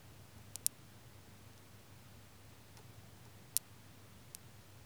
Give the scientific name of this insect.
Canariola emarginata